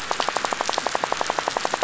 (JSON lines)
{"label": "biophony, rattle", "recorder": "SoundTrap 500"}